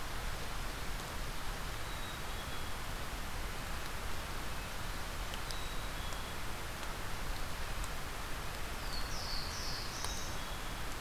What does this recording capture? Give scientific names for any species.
Poecile atricapillus, Setophaga caerulescens